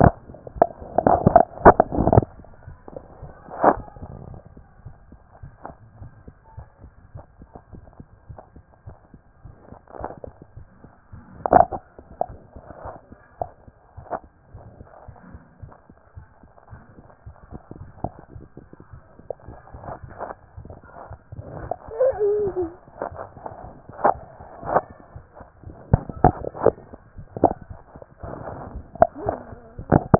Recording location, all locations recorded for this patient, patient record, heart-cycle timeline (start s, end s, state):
tricuspid valve (TV)
aortic valve (AV)+pulmonary valve (PV)+tricuspid valve (TV)+mitral valve (MV)
#Age: Child
#Sex: Female
#Height: 118.0 cm
#Weight: 25.4 kg
#Pregnancy status: False
#Murmur: Absent
#Murmur locations: nan
#Most audible location: nan
#Systolic murmur timing: nan
#Systolic murmur shape: nan
#Systolic murmur grading: nan
#Systolic murmur pitch: nan
#Systolic murmur quality: nan
#Diastolic murmur timing: nan
#Diastolic murmur shape: nan
#Diastolic murmur grading: nan
#Diastolic murmur pitch: nan
#Diastolic murmur quality: nan
#Outcome: Normal
#Campaign: 2014 screening campaign
0.00	4.40	unannotated
4.40	4.56	systole
4.56	4.62	S2
4.62	4.84	diastole
4.84	4.94	S1
4.94	5.10	systole
5.10	5.20	S2
5.20	5.42	diastole
5.42	5.52	S1
5.52	5.66	systole
5.66	5.76	S2
5.76	6.00	diastole
6.00	6.10	S1
6.10	6.26	systole
6.26	6.36	S2
6.36	6.56	diastole
6.56	6.66	S1
6.66	6.82	systole
6.82	6.92	S2
6.92	7.14	diastole
7.14	7.24	S1
7.24	7.40	systole
7.40	7.50	S2
7.50	7.72	diastole
7.72	7.82	S1
7.82	7.98	systole
7.98	8.08	S2
8.08	8.28	diastole
8.28	8.38	S1
8.38	8.54	systole
8.54	8.64	S2
8.64	8.86	diastole
8.86	8.96	S1
8.96	9.12	systole
9.12	9.22	S2
9.22	9.44	diastole
9.44	9.54	S1
9.54	9.70	systole
9.70	9.78	S2
9.78	9.98	diastole
9.98	10.10	S1
10.10	10.26	systole
10.26	10.34	S2
10.34	10.56	diastole
10.56	10.66	S1
10.66	30.19	unannotated